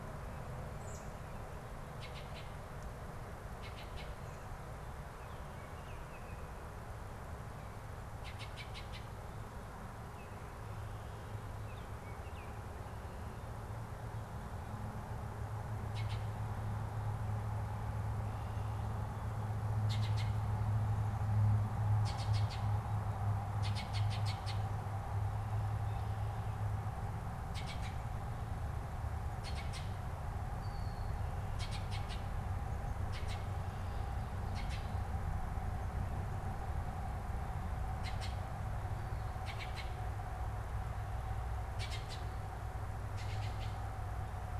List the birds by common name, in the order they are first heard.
American Robin, Baltimore Oriole